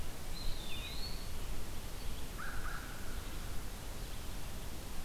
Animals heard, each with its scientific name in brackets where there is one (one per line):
American Crow (Corvus brachyrhynchos)
Eastern Wood-Pewee (Contopus virens)